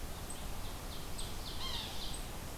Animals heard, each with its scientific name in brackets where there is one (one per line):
Ovenbird (Seiurus aurocapilla)
Yellow-bellied Sapsucker (Sphyrapicus varius)